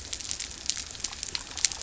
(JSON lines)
{"label": "biophony", "recorder": "SoundTrap 300"}